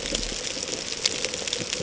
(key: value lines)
label: ambient
recorder: HydroMoth